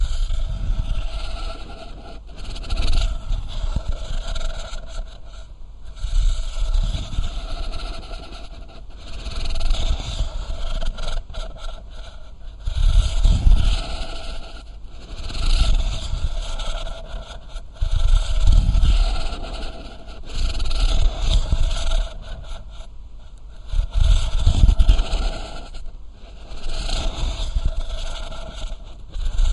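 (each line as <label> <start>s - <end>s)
Someone is snoring steadily and repeatedly. 0.0s - 29.5s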